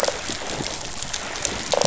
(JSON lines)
{"label": "biophony", "recorder": "SoundTrap 500"}